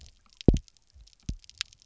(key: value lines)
label: biophony, double pulse
recorder: SoundTrap 300